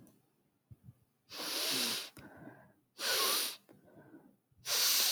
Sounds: Sigh